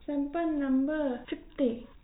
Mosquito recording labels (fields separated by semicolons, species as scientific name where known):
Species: no mosquito; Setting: cup